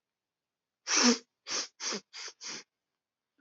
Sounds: Sniff